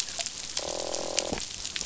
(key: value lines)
label: biophony, croak
recorder: SoundTrap 500